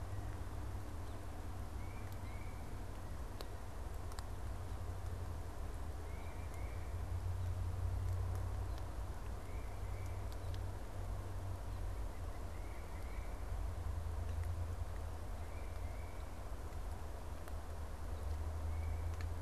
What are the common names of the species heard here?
Tufted Titmouse, White-breasted Nuthatch